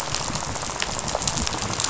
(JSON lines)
{"label": "biophony, rattle", "recorder": "SoundTrap 500"}